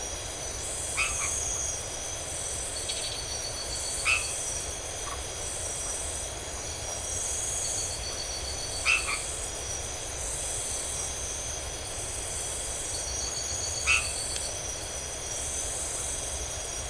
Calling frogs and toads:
Boana albomarginata (Hylidae), Scinax rizibilis (Hylidae), Phyllomedusa distincta (Hylidae)

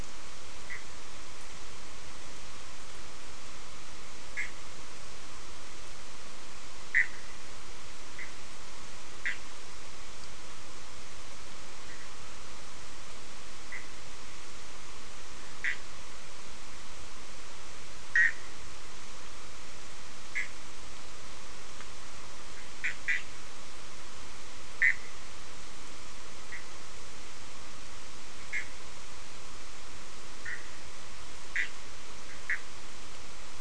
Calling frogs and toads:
Boana bischoffi (Hylidae)

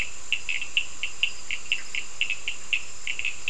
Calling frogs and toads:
Sphaenorhynchus surdus (Hylidae)

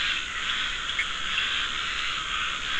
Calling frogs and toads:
Sphaenorhynchus surdus (Hylidae), Scinax perereca (Hylidae), Dendropsophus nahdereri (Hylidae)

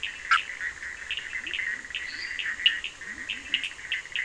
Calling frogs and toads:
Boana bischoffi (Hylidae), Sphaenorhynchus surdus (Hylidae), Leptodactylus latrans (Leptodactylidae), Dendropsophus minutus (Hylidae)

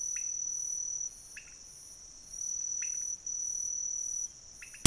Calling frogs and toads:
Leptodactylus podicipinus (Leptodactylidae)

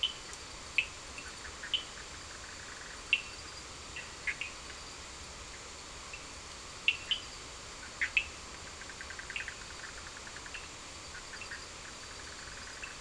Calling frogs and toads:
Sphaenorhynchus surdus (Hylidae), Boana bischoffi (Hylidae)

